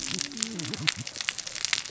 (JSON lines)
{"label": "biophony, cascading saw", "recorder": "SoundTrap 600 or HydroMoth"}